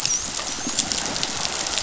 {"label": "biophony, dolphin", "recorder": "SoundTrap 500"}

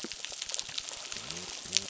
{"label": "biophony", "recorder": "SoundTrap 600"}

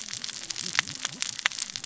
{"label": "biophony, cascading saw", "recorder": "SoundTrap 600 or HydroMoth"}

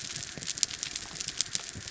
{"label": "anthrophony, boat engine", "recorder": "SoundTrap 300"}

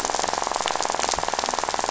{"label": "biophony, rattle", "recorder": "SoundTrap 500"}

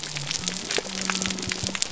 {"label": "biophony", "recorder": "SoundTrap 300"}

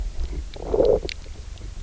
{"label": "biophony, low growl", "recorder": "SoundTrap 300"}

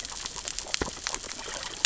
{"label": "biophony, grazing", "recorder": "SoundTrap 600 or HydroMoth"}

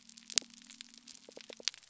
{"label": "biophony", "recorder": "SoundTrap 300"}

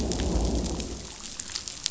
{"label": "biophony, growl", "recorder": "SoundTrap 500"}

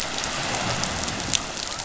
{"label": "biophony", "recorder": "SoundTrap 500"}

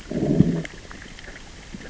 {"label": "biophony, growl", "recorder": "SoundTrap 600 or HydroMoth"}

